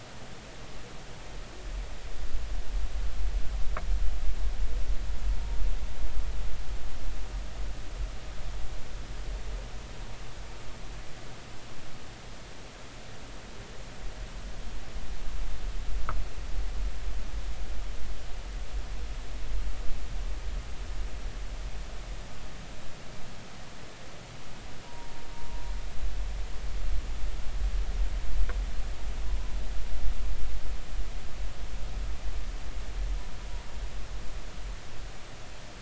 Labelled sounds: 24.8	25.2	humpback whale, 0.90 to 1.0 kHz

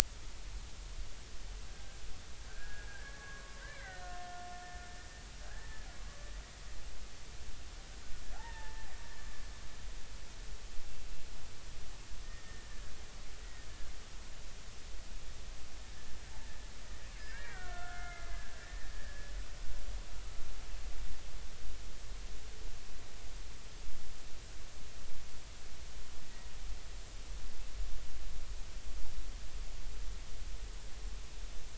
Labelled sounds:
1.7	4.5	killer whale, Bigg's (transient), 1.1 to 2.4 kHz
8.3	8.9	killer whale, Bigg's (transient), 0.80 to 1.9 kHz
12.5	12.7	killer whale, Bigg's (transient), 1.8 to 1.9 kHz
13.4	13.7	killer whale, Bigg's (transient), 1.8 to 2.0 kHz
17.2	18.9	killer whale, Bigg's (transient), 1.2 to 2.5 kHz
26.2	26.5	killer whale, Bigg's (transient), 1.9 to 2.0 kHz

